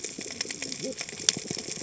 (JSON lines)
{"label": "biophony, cascading saw", "recorder": "HydroMoth"}